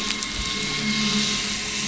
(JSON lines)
{"label": "anthrophony, boat engine", "recorder": "SoundTrap 500"}